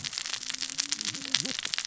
{"label": "biophony, cascading saw", "recorder": "SoundTrap 600 or HydroMoth"}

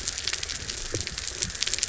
{"label": "biophony", "recorder": "SoundTrap 300"}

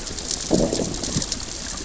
{"label": "biophony, growl", "recorder": "SoundTrap 600 or HydroMoth"}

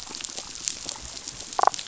{"label": "biophony, damselfish", "recorder": "SoundTrap 500"}
{"label": "biophony", "recorder": "SoundTrap 500"}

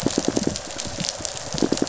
{"label": "biophony, pulse", "recorder": "SoundTrap 500"}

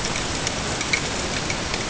{"label": "ambient", "recorder": "HydroMoth"}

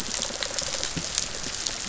{"label": "biophony, rattle response", "recorder": "SoundTrap 500"}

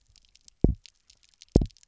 {"label": "biophony, double pulse", "recorder": "SoundTrap 300"}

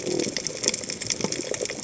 {"label": "biophony", "recorder": "HydroMoth"}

